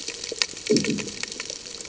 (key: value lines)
label: anthrophony, bomb
recorder: HydroMoth